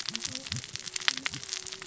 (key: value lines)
label: biophony, cascading saw
recorder: SoundTrap 600 or HydroMoth